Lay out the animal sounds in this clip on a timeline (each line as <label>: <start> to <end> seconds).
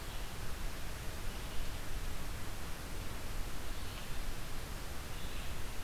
Red-eyed Vireo (Vireo olivaceus): 0.0 to 5.8 seconds